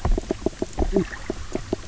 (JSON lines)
{"label": "biophony, knock croak", "recorder": "SoundTrap 300"}